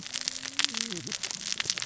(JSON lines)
{"label": "biophony, cascading saw", "recorder": "SoundTrap 600 or HydroMoth"}